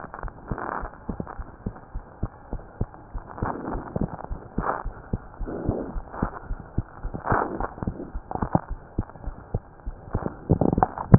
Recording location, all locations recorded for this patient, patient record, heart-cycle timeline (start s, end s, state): aortic valve (AV)
aortic valve (AV)+pulmonary valve (PV)+tricuspid valve (TV)+mitral valve (MV)
#Age: Child
#Sex: Male
#Height: 93.0 cm
#Weight: 10.4 kg
#Pregnancy status: False
#Murmur: Absent
#Murmur locations: nan
#Most audible location: nan
#Systolic murmur timing: nan
#Systolic murmur shape: nan
#Systolic murmur grading: nan
#Systolic murmur pitch: nan
#Systolic murmur quality: nan
#Diastolic murmur timing: nan
#Diastolic murmur shape: nan
#Diastolic murmur grading: nan
#Diastolic murmur pitch: nan
#Diastolic murmur quality: nan
#Outcome: Normal
#Campaign: 2015 screening campaign
0.00	1.35	unannotated
1.35	1.48	S1
1.48	1.62	systole
1.62	1.74	S2
1.74	1.93	diastole
1.93	2.02	S1
2.02	2.18	systole
2.18	2.30	S2
2.30	2.50	diastole
2.50	2.62	S1
2.62	2.78	systole
2.78	2.90	S2
2.90	3.12	diastole
3.12	3.22	S1
3.22	3.40	systole
3.40	3.54	S2
3.54	3.68	diastole
3.68	3.82	S1
3.82	3.97	systole
3.97	4.08	S2
4.08	4.27	diastole
4.27	4.40	S1
4.40	4.55	systole
4.55	4.70	S2
4.70	4.84	diastole
4.84	4.96	S1
4.96	5.11	systole
5.11	5.22	S2
5.22	5.38	diastole
5.38	5.50	S1
5.50	5.66	systole
5.66	5.80	S2
5.80	5.94	diastole
5.94	6.04	S1
6.04	6.20	systole
6.20	6.32	S2
6.32	6.46	diastole
6.46	6.60	S1
6.60	6.76	systole
6.76	6.86	S2
6.86	7.02	diastole
7.02	7.14	S1
7.14	11.18	unannotated